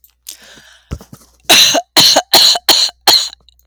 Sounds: Cough